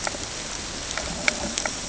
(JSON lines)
{"label": "ambient", "recorder": "HydroMoth"}